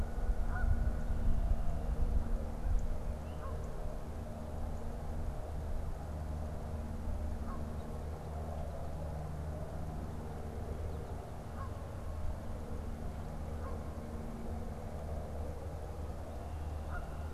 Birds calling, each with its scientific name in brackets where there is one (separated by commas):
Canada Goose (Branta canadensis), Northern Cardinal (Cardinalis cardinalis)